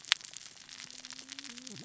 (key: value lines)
label: biophony, cascading saw
recorder: SoundTrap 600 or HydroMoth